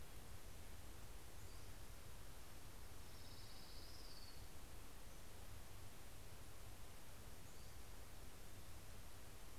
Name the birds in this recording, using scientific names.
Empidonax difficilis, Leiothlypis celata